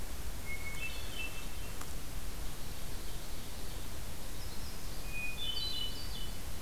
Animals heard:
Hermit Thrush (Catharus guttatus), Yellow-rumped Warbler (Setophaga coronata), Ovenbird (Seiurus aurocapilla)

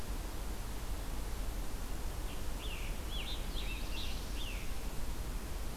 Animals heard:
Scarlet Tanager (Piranga olivacea), Black-throated Blue Warbler (Setophaga caerulescens)

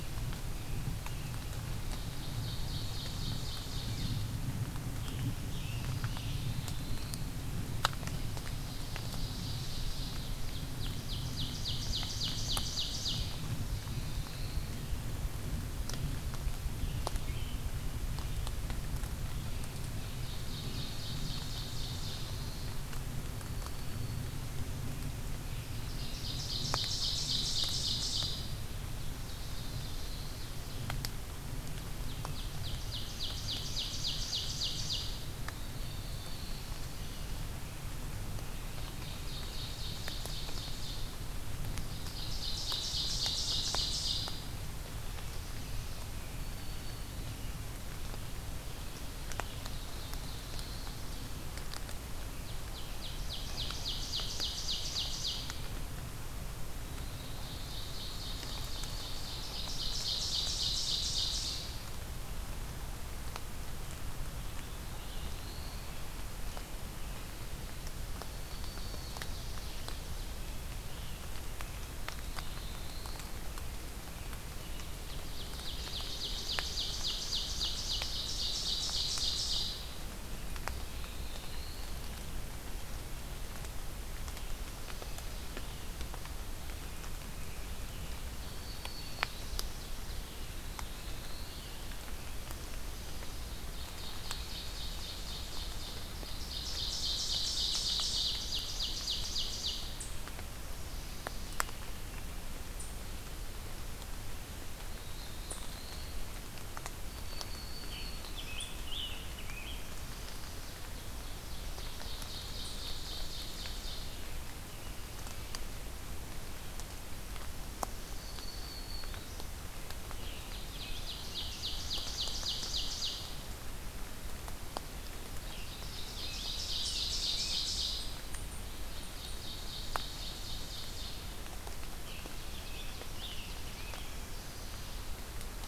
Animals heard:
Ruffed Grouse (Bonasa umbellus), Black-throated Blue Warbler (Setophaga caerulescens), Black-throated Green Warbler (Setophaga virens), Ovenbird (Seiurus aurocapilla), American Robin (Turdus migratorius), Scarlet Tanager (Piranga olivacea)

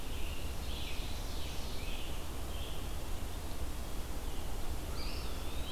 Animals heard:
Ovenbird (Seiurus aurocapilla), Scarlet Tanager (Piranga olivacea), Red-eyed Vireo (Vireo olivaceus), Eastern Wood-Pewee (Contopus virens)

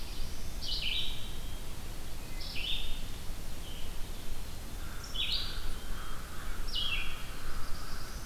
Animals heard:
Red-eyed Vireo (Vireo olivaceus), Black-throated Blue Warbler (Setophaga caerulescens), American Crow (Corvus brachyrhynchos)

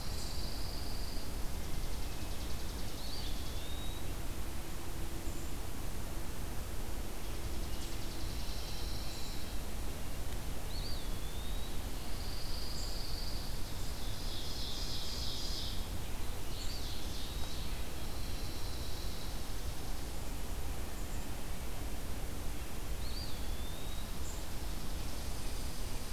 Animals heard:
Ovenbird (Seiurus aurocapilla), Brown Creeper (Certhia americana), Hermit Thrush (Catharus guttatus), Chipping Sparrow (Spizella passerina), Eastern Wood-Pewee (Contopus virens), Pine Warbler (Setophaga pinus)

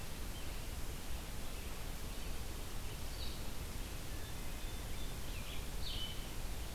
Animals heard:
Blue-headed Vireo (Vireo solitarius), Red-breasted Nuthatch (Sitta canadensis), Red-eyed Vireo (Vireo olivaceus)

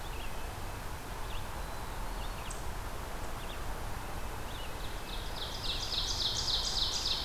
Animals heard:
Black-throated Blue Warbler (Setophaga caerulescens), Red-eyed Vireo (Vireo olivaceus), Red-breasted Nuthatch (Sitta canadensis), Ovenbird (Seiurus aurocapilla)

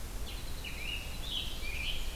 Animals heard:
Winter Wren (Troglodytes hiemalis), Scarlet Tanager (Piranga olivacea), Red-eyed Vireo (Vireo olivaceus)

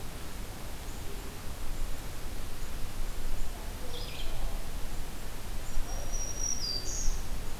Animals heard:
Black-throated Green Warbler (Setophaga virens), Red-eyed Vireo (Vireo olivaceus)

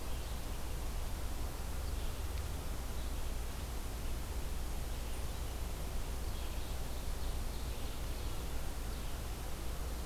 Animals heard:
Red-eyed Vireo (Vireo olivaceus), Ovenbird (Seiurus aurocapilla)

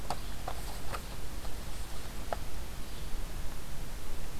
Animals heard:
Yellow-bellied Flycatcher (Empidonax flaviventris)

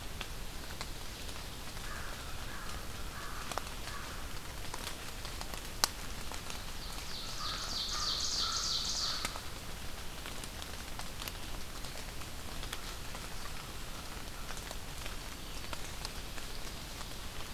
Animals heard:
Ovenbird (Seiurus aurocapilla), Black-throated Green Warbler (Setophaga virens), American Crow (Corvus brachyrhynchos)

